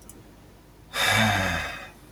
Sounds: Sigh